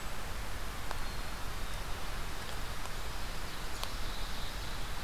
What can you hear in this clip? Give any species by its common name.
Black-capped Chickadee, Ovenbird